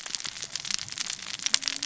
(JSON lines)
{"label": "biophony, cascading saw", "recorder": "SoundTrap 600 or HydroMoth"}